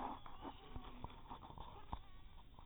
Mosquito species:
mosquito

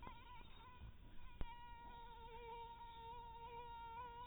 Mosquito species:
mosquito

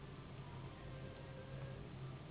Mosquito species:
Anopheles gambiae s.s.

